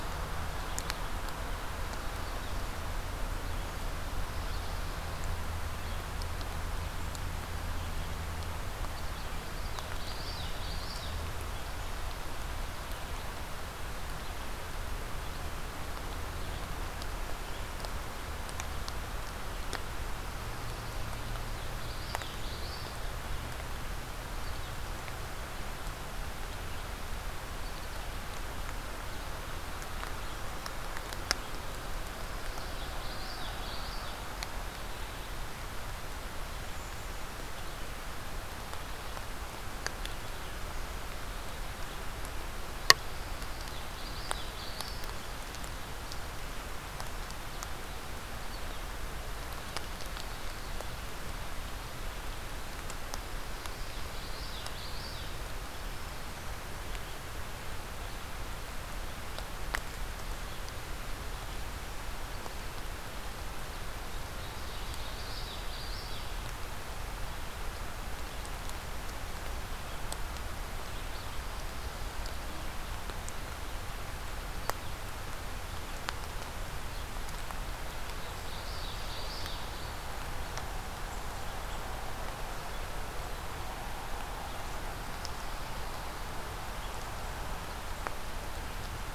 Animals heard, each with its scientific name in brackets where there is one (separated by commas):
Black-throated Green Warbler (Setophaga virens), Common Yellowthroat (Geothlypis trichas), Ovenbird (Seiurus aurocapilla)